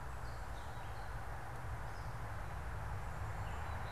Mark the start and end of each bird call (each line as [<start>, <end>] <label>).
[0.00, 0.95] American Crow (Corvus brachyrhynchos)
[0.00, 3.92] Gray Catbird (Dumetella carolinensis)